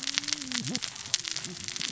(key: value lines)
label: biophony, cascading saw
recorder: SoundTrap 600 or HydroMoth